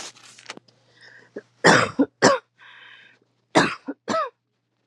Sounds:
Cough